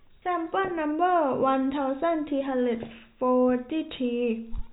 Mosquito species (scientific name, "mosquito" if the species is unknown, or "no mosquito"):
no mosquito